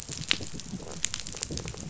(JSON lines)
{"label": "biophony", "recorder": "SoundTrap 500"}